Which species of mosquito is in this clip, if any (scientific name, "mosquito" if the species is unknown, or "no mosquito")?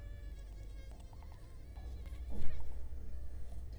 Culex quinquefasciatus